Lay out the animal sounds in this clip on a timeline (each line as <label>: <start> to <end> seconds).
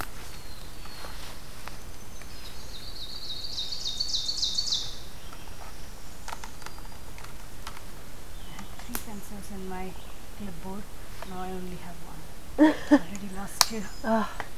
Black-throated Blue Warbler (Setophaga caerulescens): 0.0 to 1.9 seconds
Black-throated Green Warbler (Setophaga virens): 1.6 to 3.0 seconds
Ovenbird (Seiurus aurocapilla): 2.6 to 5.0 seconds
Black-throated Blue Warbler (Setophaga caerulescens): 4.9 to 6.5 seconds
Black-throated Green Warbler (Setophaga virens): 6.3 to 7.3 seconds